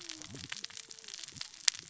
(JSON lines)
{"label": "biophony, cascading saw", "recorder": "SoundTrap 600 or HydroMoth"}